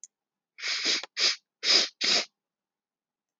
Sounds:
Sniff